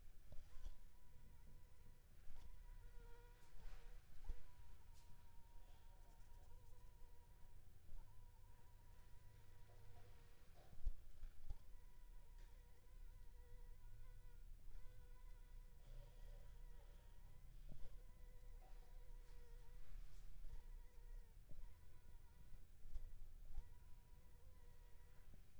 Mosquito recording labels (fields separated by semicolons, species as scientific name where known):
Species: Anopheles funestus s.s.; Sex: female; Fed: unfed; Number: one; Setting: cup